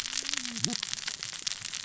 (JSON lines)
{"label": "biophony, cascading saw", "recorder": "SoundTrap 600 or HydroMoth"}